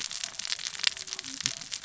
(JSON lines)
{"label": "biophony, cascading saw", "recorder": "SoundTrap 600 or HydroMoth"}